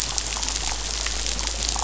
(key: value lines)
label: anthrophony, boat engine
recorder: SoundTrap 500